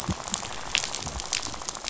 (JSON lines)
{"label": "biophony, rattle", "recorder": "SoundTrap 500"}